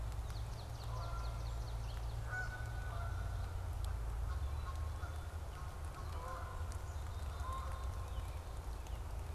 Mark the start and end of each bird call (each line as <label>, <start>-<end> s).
Swamp Sparrow (Melospiza georgiana), 0.0-2.3 s
Canada Goose (Branta canadensis), 0.8-8.4 s
Black-capped Chickadee (Poecile atricapillus), 7.0-8.4 s